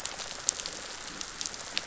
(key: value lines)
label: biophony
recorder: SoundTrap 500